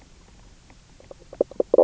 {"label": "biophony, knock croak", "recorder": "SoundTrap 300"}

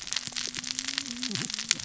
{"label": "biophony, cascading saw", "recorder": "SoundTrap 600 or HydroMoth"}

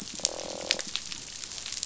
{"label": "biophony", "recorder": "SoundTrap 500"}
{"label": "biophony, croak", "recorder": "SoundTrap 500"}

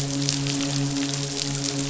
{"label": "biophony, midshipman", "recorder": "SoundTrap 500"}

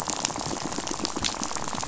{"label": "biophony, rattle", "recorder": "SoundTrap 500"}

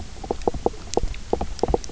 {"label": "biophony, knock croak", "recorder": "SoundTrap 300"}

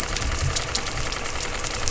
{"label": "anthrophony, boat engine", "recorder": "SoundTrap 300"}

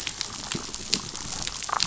{"label": "biophony, damselfish", "recorder": "SoundTrap 500"}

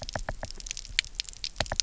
{"label": "biophony, knock", "recorder": "SoundTrap 300"}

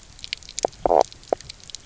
{"label": "biophony, knock croak", "recorder": "SoundTrap 300"}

